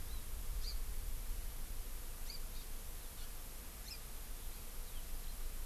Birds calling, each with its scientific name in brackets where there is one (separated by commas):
Hawaii Amakihi (Chlorodrepanis virens)